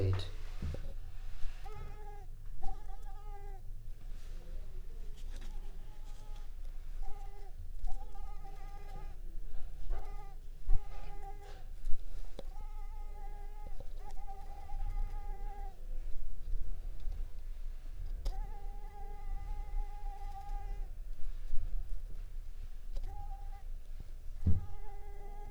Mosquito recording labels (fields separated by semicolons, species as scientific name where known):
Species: Mansonia africanus; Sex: female; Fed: unfed; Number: one; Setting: cup